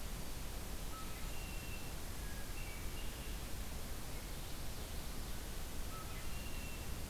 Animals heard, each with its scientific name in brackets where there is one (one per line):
Hermit Thrush (Catharus guttatus)
Common Yellowthroat (Geothlypis trichas)
Red-winged Blackbird (Agelaius phoeniceus)